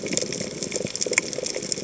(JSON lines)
{"label": "biophony, chatter", "recorder": "HydroMoth"}